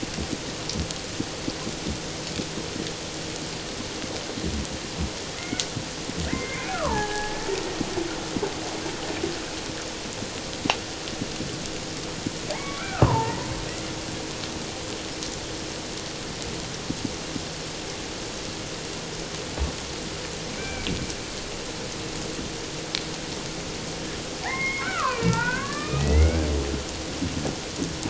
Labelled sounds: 5.4	5.7	killer whale, Bigg's (transient), call T01, 1.4 to 2.2 kHz
6.2	7.4	killer whale, Bigg's (transient), call T04, 0.78 to 2.6 kHz
12.5	13.5	killer whale, Bigg's (transient), call T04, 0.78 to 2.4 kHz
20.5	20.9	killer whale, Bigg's (transient), call T01, 1.4 to 2.4 kHz
24.4	26.5	killer whale, Bigg's (transient), call T04, 0.78 to 3.0 kHz

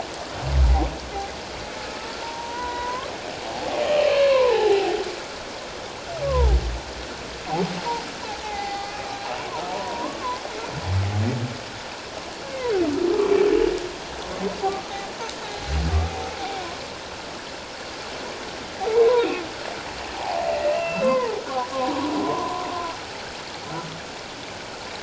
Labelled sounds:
2.2	3.1	humpback whale, 0.88 to 4.0 kHz
3.9	4.9	humpback whale, 0.78 to 3.1 kHz
6.2	6.6	humpback whale, 0.78 to 1.2 kHz
8.4	9.0	humpback whale, 0.78 to 4.6 kHz
9.7	10.4	humpback whale, 0.88 to 1.2 kHz
14.6	14.8	humpback whale, 0.78 to 0.88 kHz
18.9	22.0	humpback whale, 0.78 to 2.8 kHz
22.2	22.5	humpback whale, 0.91 to 1.1 kHz

